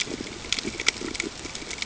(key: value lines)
label: ambient
recorder: HydroMoth